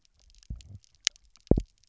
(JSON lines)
{"label": "biophony, double pulse", "recorder": "SoundTrap 300"}